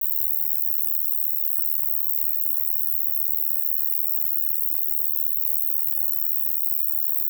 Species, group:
Roeseliana roeselii
Orthoptera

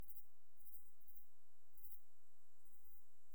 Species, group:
Pholidoptera griseoaptera
Orthoptera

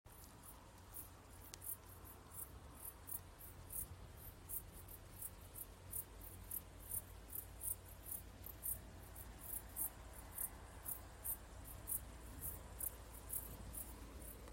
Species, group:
Pholidoptera griseoaptera
Orthoptera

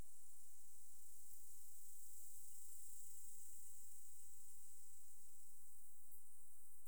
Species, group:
Leptophyes punctatissima
Orthoptera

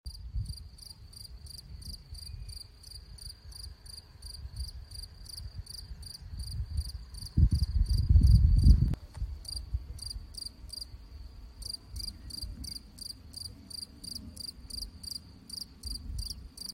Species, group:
Gryllus campestris
Orthoptera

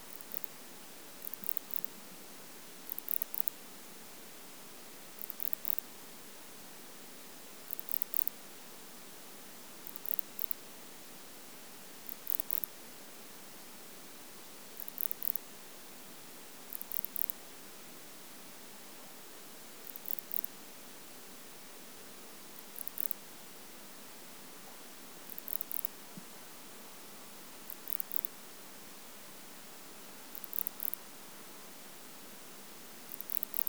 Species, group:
Barbitistes yersini
Orthoptera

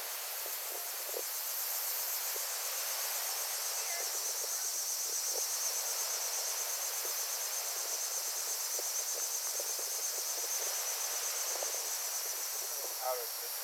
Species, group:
Neotibicen linnei
Cicadidae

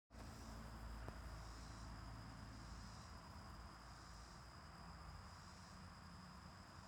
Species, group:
Neotibicen robinsonianus
Cicadidae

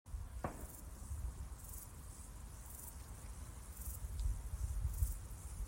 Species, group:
Euchorthippus declivus
Orthoptera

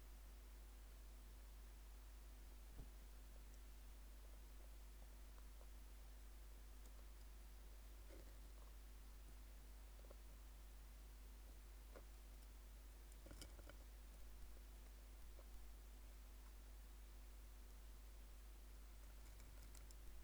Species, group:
Phaneroptera falcata
Orthoptera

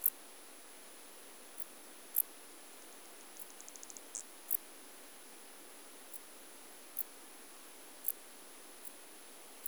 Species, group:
Pholidoptera griseoaptera
Orthoptera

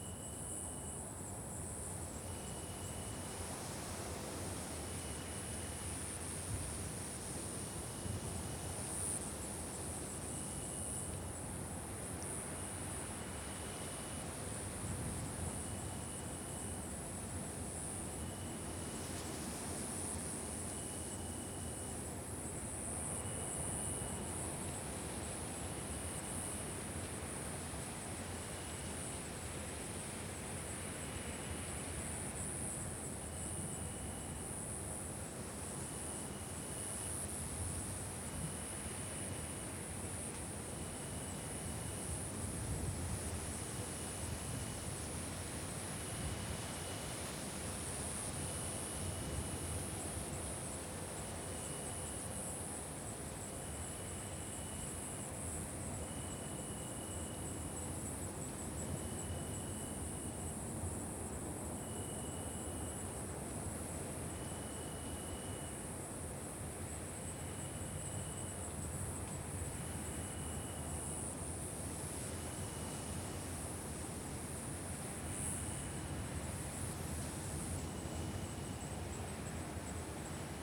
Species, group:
Oecanthus allardi
Orthoptera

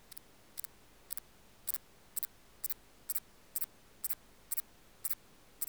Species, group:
Antaxius spinibrachius
Orthoptera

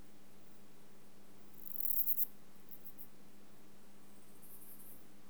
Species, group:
Callicrania ramburii
Orthoptera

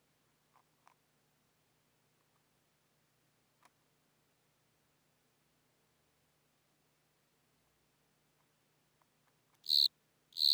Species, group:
Platycleis intermedia
Orthoptera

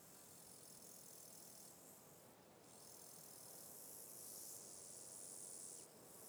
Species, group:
Chorthippus yersini
Orthoptera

